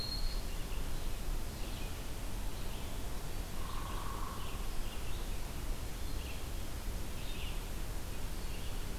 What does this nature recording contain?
Eastern Wood-Pewee, Red-eyed Vireo, Hairy Woodpecker